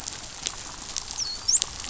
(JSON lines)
{"label": "biophony, dolphin", "recorder": "SoundTrap 500"}